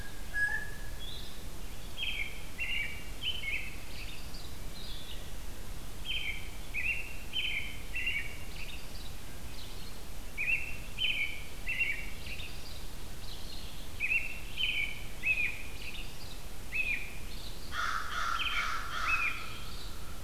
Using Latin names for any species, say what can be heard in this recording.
Cyanocitta cristata, Vireo solitarius, Turdus migratorius, Corvus brachyrhynchos